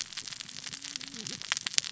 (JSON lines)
{"label": "biophony, cascading saw", "recorder": "SoundTrap 600 or HydroMoth"}